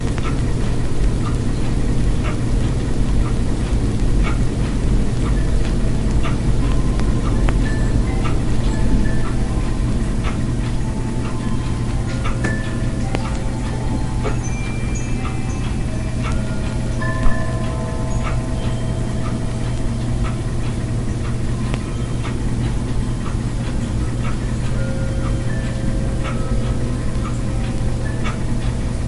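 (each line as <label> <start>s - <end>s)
A clock ticks repeatedly amid white noise. 0.0s - 5.6s
A clock is ticking repeatedly. 5.5s - 29.1s
Wind chimes clinking in the distance with constant white noise. 5.5s - 29.1s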